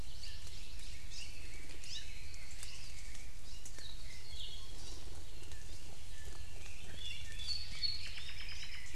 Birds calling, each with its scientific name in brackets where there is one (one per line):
Red-billed Leiothrix (Leiothrix lutea)
Hawaii Creeper (Loxops mana)
Hawaii Amakihi (Chlorodrepanis virens)
Apapane (Himatione sanguinea)